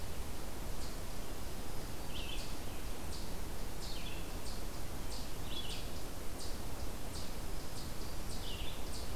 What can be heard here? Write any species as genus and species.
Tamias striatus, Vireo olivaceus, Setophaga virens